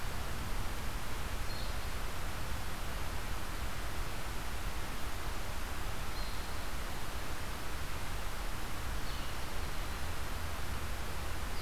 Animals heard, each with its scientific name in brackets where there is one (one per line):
Red-eyed Vireo (Vireo olivaceus)